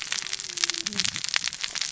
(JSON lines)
{"label": "biophony, cascading saw", "recorder": "SoundTrap 600 or HydroMoth"}